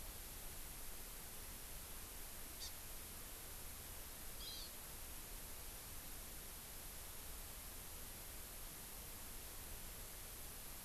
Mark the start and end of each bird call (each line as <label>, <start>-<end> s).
Hawaii Amakihi (Chlorodrepanis virens), 2.5-2.7 s
Hawaii Amakihi (Chlorodrepanis virens), 4.4-4.6 s